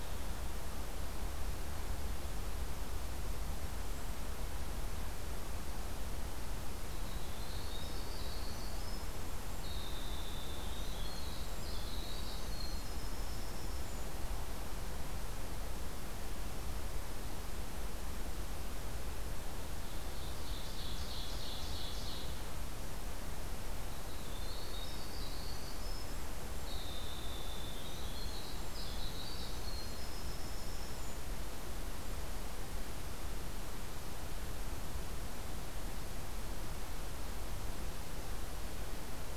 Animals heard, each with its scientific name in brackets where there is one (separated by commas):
Ovenbird (Seiurus aurocapilla), Winter Wren (Troglodytes hiemalis)